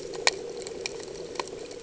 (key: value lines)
label: anthrophony, boat engine
recorder: HydroMoth